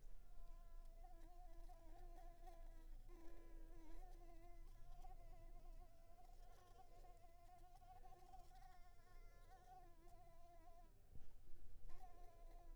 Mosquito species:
Anopheles coustani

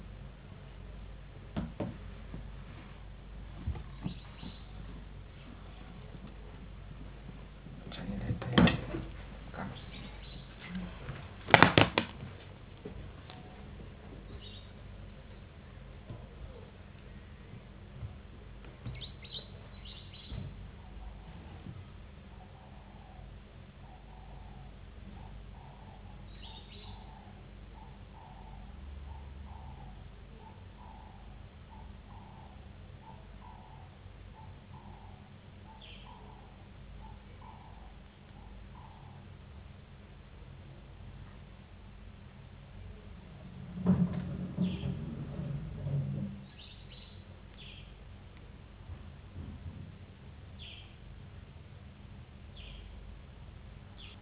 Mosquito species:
no mosquito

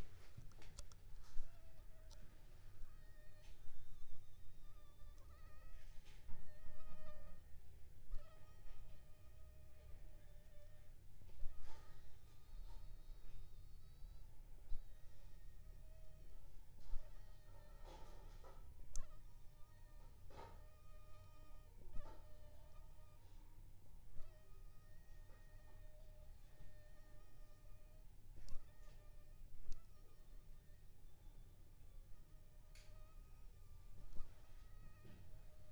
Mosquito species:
Anopheles funestus s.s.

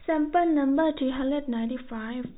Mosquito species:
no mosquito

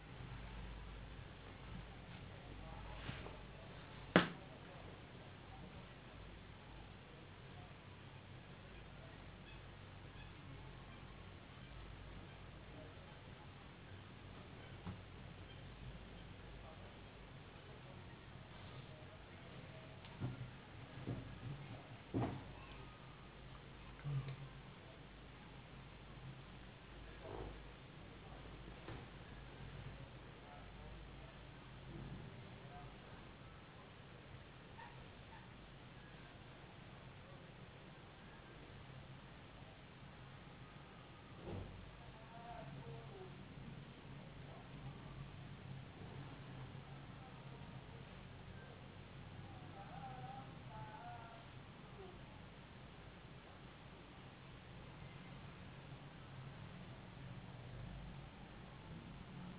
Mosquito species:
no mosquito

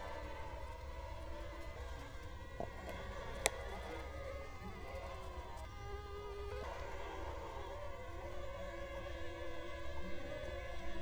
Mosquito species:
Culex quinquefasciatus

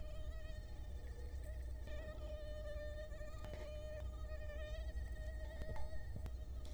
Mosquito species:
Culex quinquefasciatus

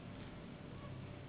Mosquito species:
Anopheles gambiae s.s.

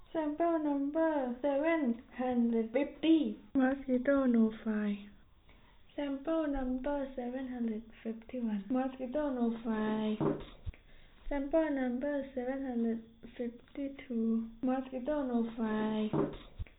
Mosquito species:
no mosquito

